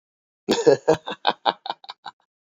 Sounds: Laughter